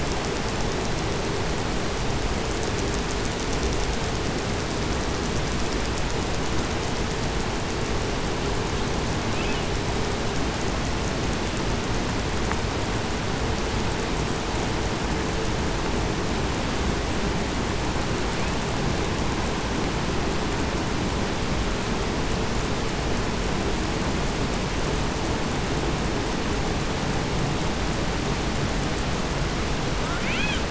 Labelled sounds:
9.2	9.8	killer whale, 1.8 to 3.9 kHz
18.1	18.8	killer whale, 1.6 to 3.1 kHz
29.9	30.6	killer whale, southern resident, call S18, 0.69 to 8.0 kHz

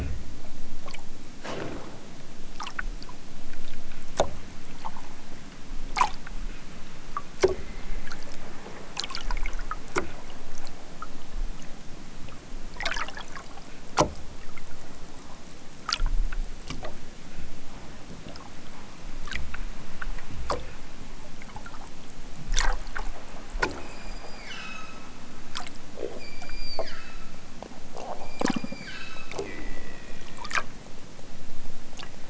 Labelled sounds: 23.8	25.1	killer whale, southern Alaska resident, 0.96 to 8.0 kHz
26.0	27.5	killer whale, southern Alaska resident, 1.1 to 8.0 kHz
28.2	29.6	killer whale, southern Alaska resident, 1.1 to 8.0 kHz

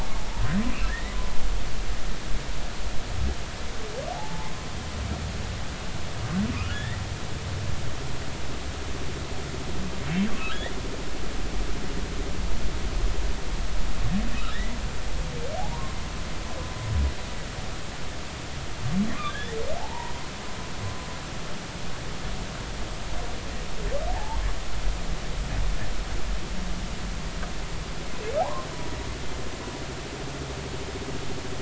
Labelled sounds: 0.8	1.2	humpback whale, 1.5 to 2.0 kHz
4.1	4.5	humpback whale, 0.80 to 0.93 kHz
6.5	7.0	humpback whale, 1.1 to 3.8 kHz
14.5	14.8	humpback whale, 1.7 to 2.1 kHz
15.5	16.0	humpback whale, 0.80 to 1.1 kHz
19.3	20.1	humpback whale, 0.80 to 2.0 kHz
24.1	24.4	humpback whale, 0.80 to 0.96 kHz
28.4	28.7	humpback whale, 0.80 to 1.2 kHz

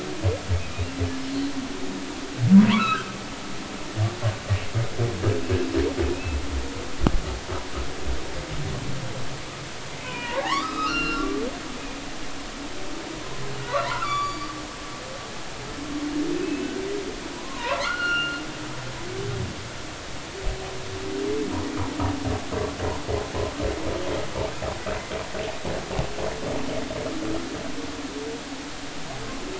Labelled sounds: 2.6	3.1	humpback whale, 0.90 to 1.8 kHz
6.1	6.4	humpback whale, 2.4 to 2.7 kHz
10.0	11.3	humpback whale, 0.80 to 4.4 kHz
13.7	14.5	humpback whale, 0.90 to 7.0 kHz
16.4	16.7	humpback whale, 2.5 to 2.7 kHz
17.3	18.4	humpback whale, 0.83 to 2.9 kHz

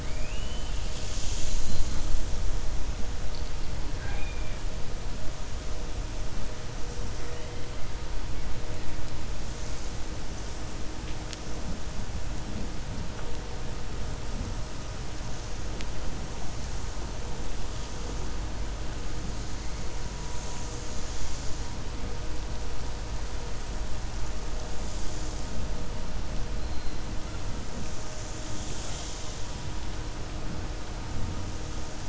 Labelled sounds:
4.1	4.6	killer whale, 0.78 to 3.7 kHz

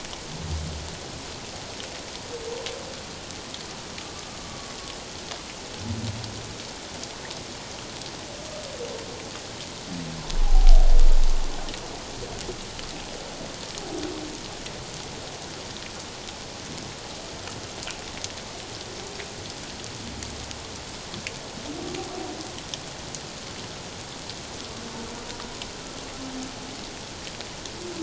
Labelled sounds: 10.4	10.9	humpback whale, 0.78 to 0.88 kHz

